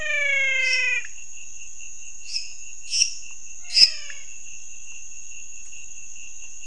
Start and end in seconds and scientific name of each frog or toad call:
0.0	1.2	Physalaemus albonotatus
0.5	4.0	Dendropsophus minutus
3.7	4.4	Physalaemus albonotatus